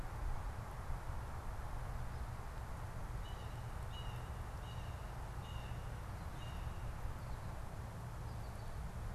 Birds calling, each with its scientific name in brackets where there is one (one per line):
Blue Jay (Cyanocitta cristata)